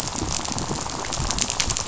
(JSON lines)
{"label": "biophony, rattle", "recorder": "SoundTrap 500"}